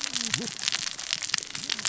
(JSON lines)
{"label": "biophony, cascading saw", "recorder": "SoundTrap 600 or HydroMoth"}